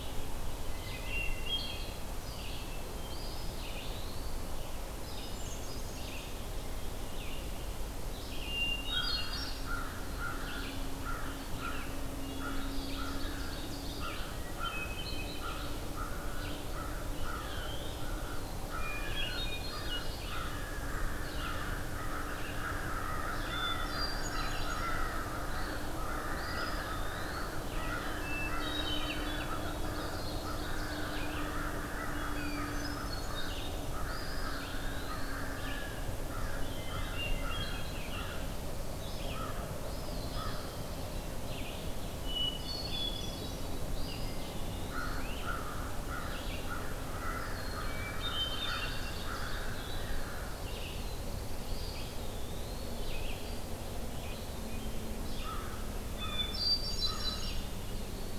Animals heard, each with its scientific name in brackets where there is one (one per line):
Black-throated Blue Warbler (Setophaga caerulescens)
Ovenbird (Seiurus aurocapilla)
American Crow (Corvus brachyrhynchos)
Hermit Thrush (Catharus guttatus)
Eastern Wood-Pewee (Contopus virens)
Red-eyed Vireo (Vireo olivaceus)